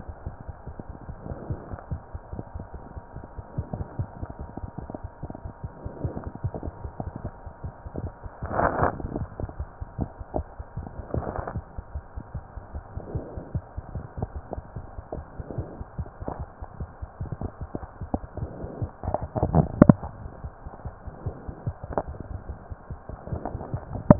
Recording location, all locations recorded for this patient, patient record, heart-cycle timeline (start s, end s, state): mitral valve (MV)
aortic valve (AV)+pulmonary valve (PV)+tricuspid valve (TV)+mitral valve (MV)
#Age: Child
#Sex: Male
#Height: 104.0 cm
#Weight: 17.1 kg
#Pregnancy status: False
#Murmur: Absent
#Murmur locations: nan
#Most audible location: nan
#Systolic murmur timing: nan
#Systolic murmur shape: nan
#Systolic murmur grading: nan
#Systolic murmur pitch: nan
#Systolic murmur quality: nan
#Diastolic murmur timing: nan
#Diastolic murmur shape: nan
#Diastolic murmur grading: nan
#Diastolic murmur pitch: nan
#Diastolic murmur quality: nan
#Outcome: Abnormal
#Campaign: 2015 screening campaign
0.00	11.93	unannotated
11.93	12.00	S1
12.00	12.15	systole
12.15	12.21	S2
12.21	12.33	diastole
12.33	12.40	S1
12.40	12.55	systole
12.55	12.60	S2
12.60	12.72	diastole
12.72	12.80	S1
12.80	12.95	systole
12.95	13.00	S2
13.00	13.13	diastole
13.13	13.19	S1
13.19	13.35	systole
13.35	13.41	S2
13.41	13.53	diastole
13.53	13.60	S1
13.60	13.75	systole
13.75	13.80	S2
13.80	13.94	diastole
13.94	14.00	S1
14.00	14.16	systole
14.16	14.21	S2
14.21	14.34	diastole
14.34	14.41	S1
14.41	14.55	systole
14.55	14.61	S2
14.61	14.75	diastole
14.75	14.81	S1
14.81	14.97	systole
14.97	15.02	S2
15.02	15.15	diastole
15.15	15.23	S1
15.23	24.19	unannotated